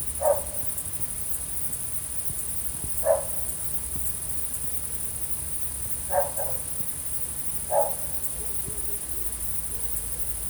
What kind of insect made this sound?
orthopteran